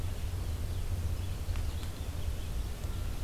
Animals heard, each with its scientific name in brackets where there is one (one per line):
Red-eyed Vireo (Vireo olivaceus)